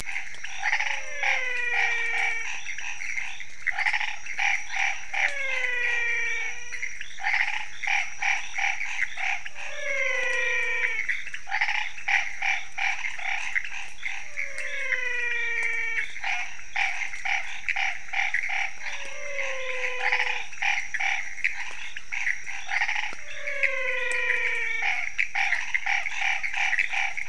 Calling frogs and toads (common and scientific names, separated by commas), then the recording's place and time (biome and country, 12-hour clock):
pointedbelly frog (Leptodactylus podicipinus), Pithecopus azureus, Chaco tree frog (Boana raniceps), menwig frog (Physalaemus albonotatus)
Cerrado, Brazil, 3:45am